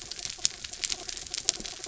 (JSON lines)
{"label": "anthrophony, mechanical", "recorder": "SoundTrap 300"}